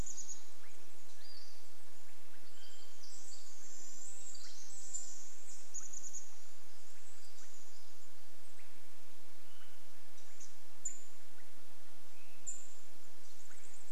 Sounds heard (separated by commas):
Swainson's Thrush call, unidentified sound, Pacific-slope Flycatcher call, Pacific Wren song, Chestnut-backed Chickadee call